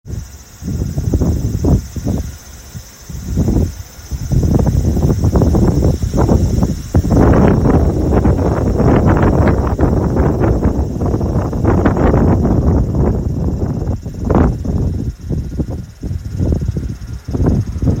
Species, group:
Graptopsaltria nigrofuscata, Cicadidae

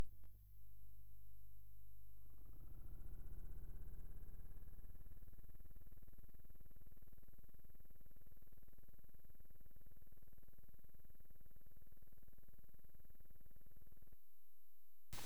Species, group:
Conocephalus fuscus, Orthoptera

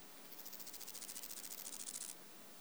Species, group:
Stenobothrus fischeri, Orthoptera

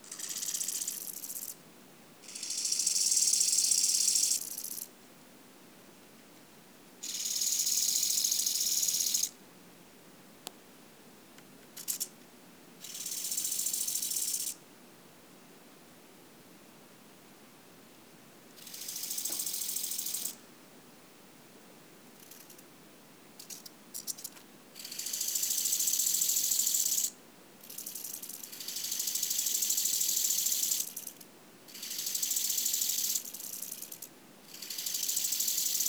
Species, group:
Chorthippus biguttulus, Orthoptera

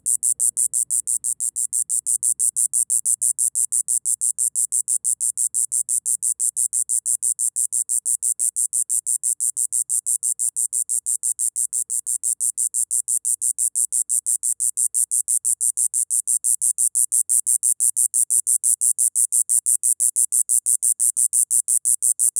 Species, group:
Diceroprocta texana, Cicadidae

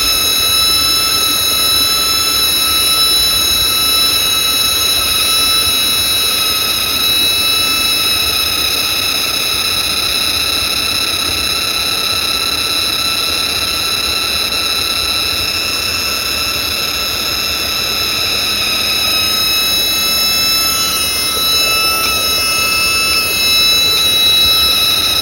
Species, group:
Macrosemia kareisana, Cicadidae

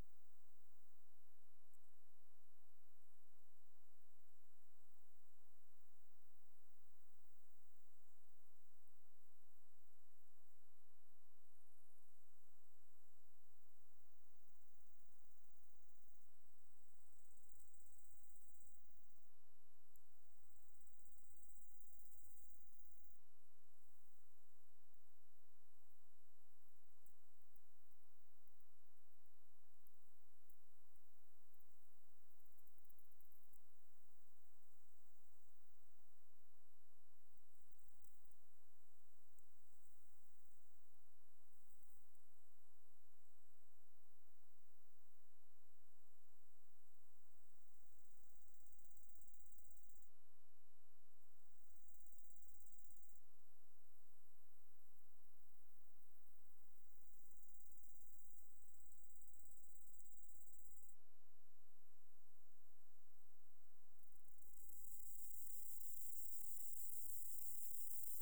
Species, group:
Gomphocerippus rufus, Orthoptera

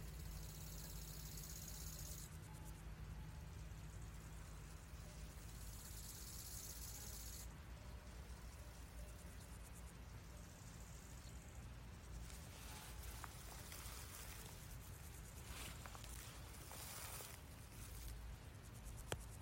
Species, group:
Chorthippus biguttulus, Orthoptera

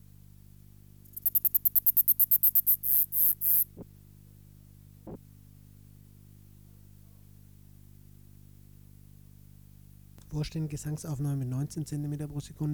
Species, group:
Neocallicrania selligera, Orthoptera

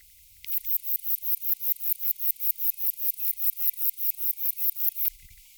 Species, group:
Platycleis affinis, Orthoptera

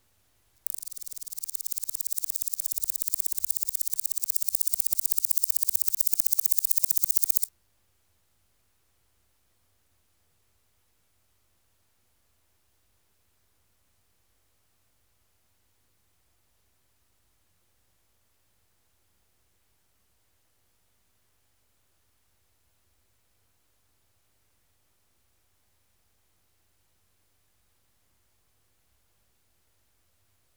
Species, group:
Omocestus rufipes, Orthoptera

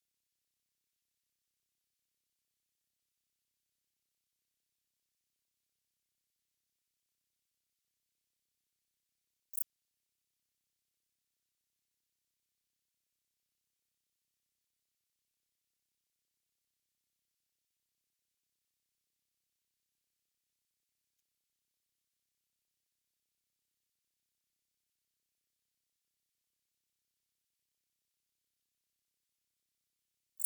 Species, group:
Pholidoptera femorata, Orthoptera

